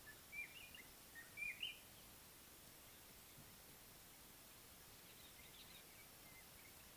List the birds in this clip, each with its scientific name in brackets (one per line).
White-browed Robin-Chat (Cossypha heuglini)